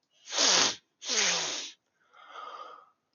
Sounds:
Sniff